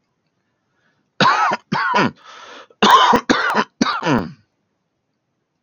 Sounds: Cough